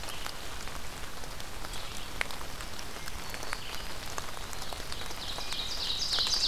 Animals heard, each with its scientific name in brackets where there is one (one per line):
Red-eyed Vireo (Vireo olivaceus)
Hermit Thrush (Catharus guttatus)
Ovenbird (Seiurus aurocapilla)
Eastern Wood-Pewee (Contopus virens)
Black-throated Green Warbler (Setophaga virens)